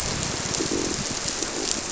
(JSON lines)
{"label": "biophony", "recorder": "SoundTrap 300"}